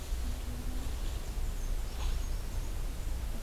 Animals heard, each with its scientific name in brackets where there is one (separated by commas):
Black-and-white Warbler (Mniotilta varia)